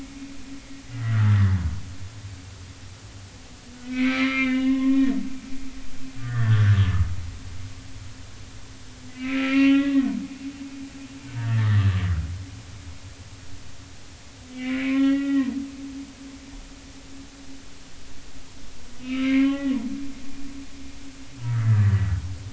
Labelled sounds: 1.1	1.4	humpback whale, 1.1 to 1.6 kHz
3.8	5.1	humpback whale, 0.99 to 3.6 kHz
6.2	6.7	humpback whale, 1.1 to 3.6 kHz
9.1	10.0	humpback whale, 1.2 to 3.4 kHz
11.4	12.0	humpback whale, 1.1 to 2.0 kHz
14.5	15.5	humpback whale, 1.0 to 3.4 kHz
19.0	19.7	humpback whale, 0.80 to 3.0 kHz
21.4	22.1	humpback whale, 1.1 to 2.0 kHz

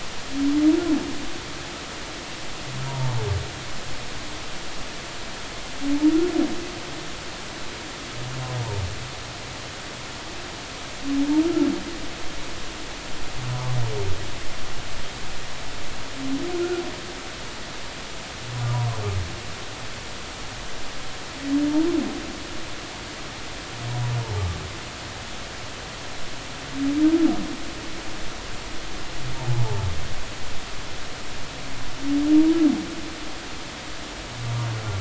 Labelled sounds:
2.9	3.2	humpback whale, 0.80 to 0.99 kHz
11.4	11.7	humpback whale, 1.3 to 1.4 kHz
13.5	13.8	humpback whale, 0.86 to 1.2 kHz

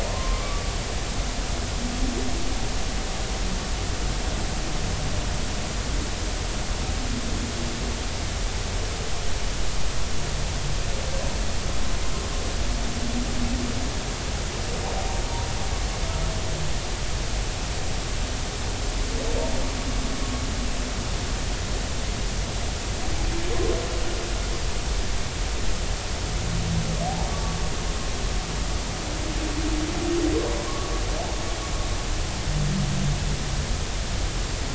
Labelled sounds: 0.1	0.7	humpback whale, 0.90 to 1.2 kHz
27.3	27.6	humpback whale, 1.1 to 1.2 kHz
30.6	30.9	humpback whale, 0.96 to 1.2 kHz

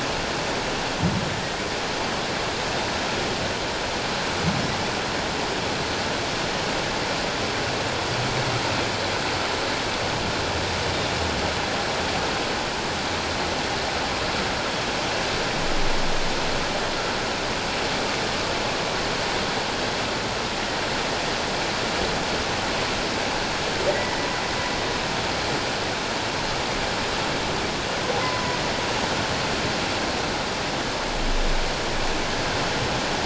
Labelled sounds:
28.2	28.6	humpback whale, 0.94 to 1.1 kHz

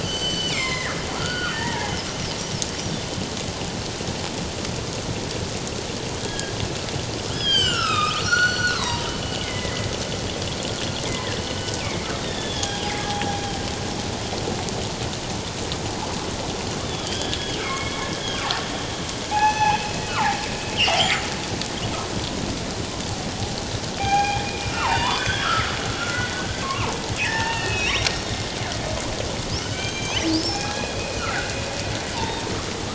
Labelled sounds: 0.0	2.0	killer whale, northern resident, G clan, 0.78 to 7.7 kHz
6.2	9.9	killer whale, northern resident, G clan, 0.88 to 8.0 kHz
11.8	12.9	killer whale, northern resident, G clan, 0.78 to 3.8 kHz
16.8	18.1	killer whale, northern resident, G clan, 1.0 to 3.6 kHz
19.3	19.8	killer whale, northern resident, G clan, 0.78 to 6.1 kHz
20.1	20.4	killer whale, northern resident, G clan, 0.78 to 1.6 kHz
24.0	28.3	killer whale, northern resident, G clan, 0.78 to 6.6 kHz
29.6	32.5	killer whale, northern resident, G clan, 0.78 to 6.5 kHz

